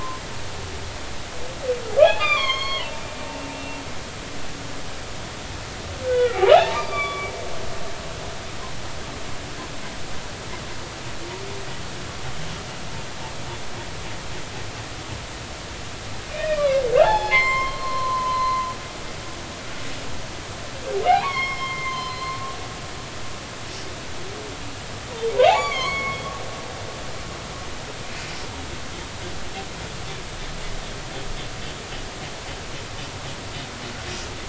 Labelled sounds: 2.0	3.0	humpback whale, 0.90 to 6.6 kHz
3.5	3.8	humpback whale, 2.7 to 2.8 kHz
6.0	7.2	humpback whale, 0.80 to 4.8 kHz
7.7	8.3	humpback whale, 1.1 to 2.4 kHz
16.3	18.7	humpback whale, 0.80 to 5.3 kHz
21.1	22.4	humpback whale, 0.80 to 6.4 kHz
25.4	26.2	humpback whale, 0.80 to 7.0 kHz

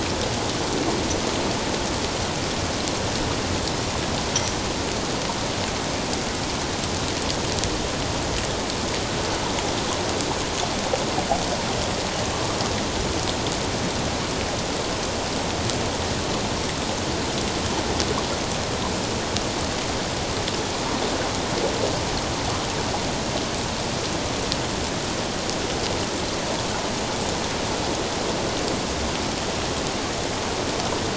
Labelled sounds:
4.3	4.6	metallic clang, 5.5 to 6.0 kHz

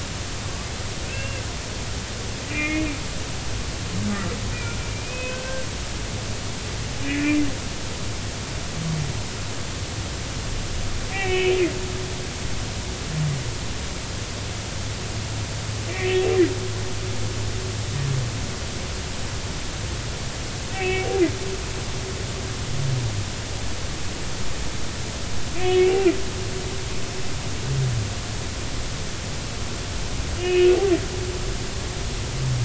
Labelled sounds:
1.0	1.4	humpback whale, 1.5 to 2.8 kHz
2.5	2.9	humpback whale, 2.0 to 2.6 kHz
4.5	5.7	humpback whale, 1.5 to 2.6 kHz
7.0	7.4	humpback whale, 1.7 to 2.8 kHz
11.1	11.6	humpback whale, 1.8 to 3.2 kHz
20.7	21.1	humpback whale, 1.8 to 2.7 kHz
25.5	26.0	humpback whale, 2.3 to 3.4 kHz
30.4	30.7	humpback whale, 1.8 to 3.0 kHz

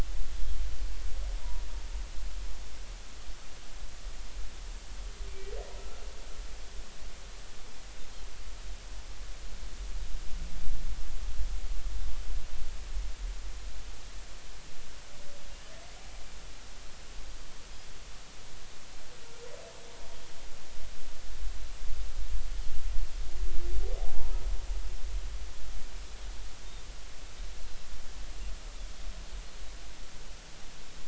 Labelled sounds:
5.8	6.0	humpback whale, 1.3 to 1.4 kHz
24.0	24.3	humpback whale, 0.80 to 0.99 kHz
28.8	29.0	Pacific white-sided dolphin, 3.2 to 3.5 kHz

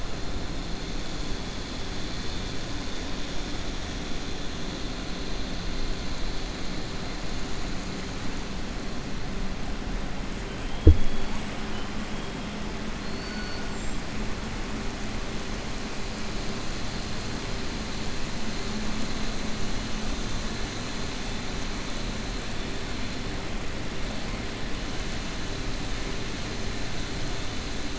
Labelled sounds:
13.0	13.6	killer whale, southern resident, 4.2 to 5.0 kHz

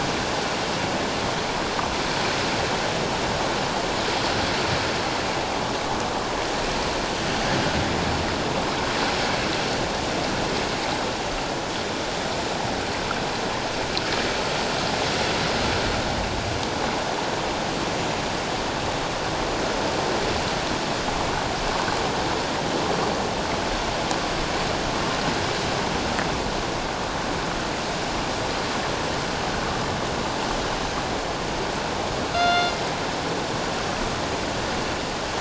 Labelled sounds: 32.3	32.8	killer whale, northern resident, G clan, 1.3 to 4.3 kHz

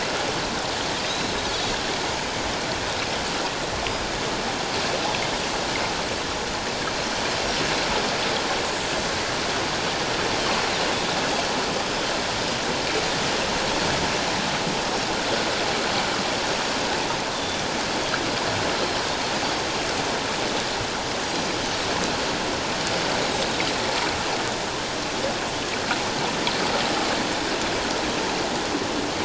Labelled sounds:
1.0	1.3	Pacific white-sided dolphin, 3.6 to 5.3 kHz
17.3	17.6	Pacific white-sided dolphin, 3.4 to 3.7 kHz

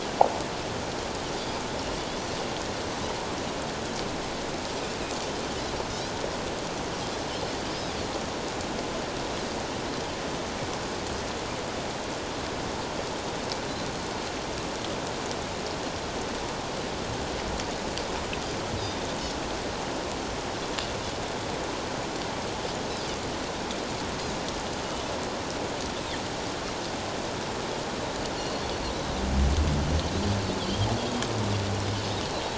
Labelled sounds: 7.7	7.9	Pacific white-sided dolphin, 4.7 to 5.2 kHz
28.4	28.6	Pacific white-sided dolphin, 4.2 to 4.4 kHz
30.6	30.9	Pacific white-sided dolphin, 3.0 to 3.3 kHz

